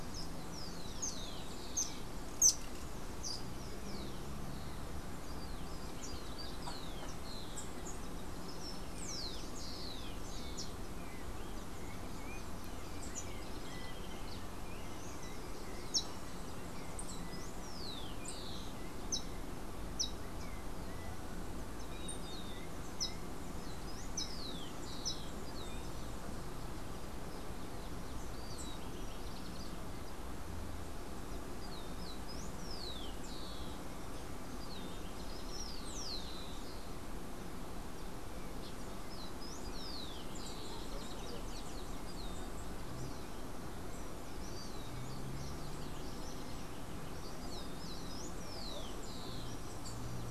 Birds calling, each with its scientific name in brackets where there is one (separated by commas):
House Wren (Troglodytes aedon), Rufous-collared Sparrow (Zonotrichia capensis), Yellow-backed Oriole (Icterus chrysater), unidentified bird